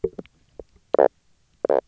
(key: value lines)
label: biophony, knock croak
recorder: SoundTrap 300